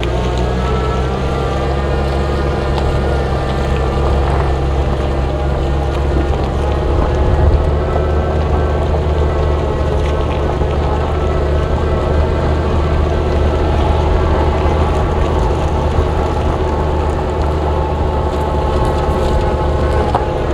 Is there a single heavy machine?
yes